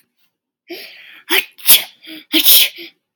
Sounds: Sneeze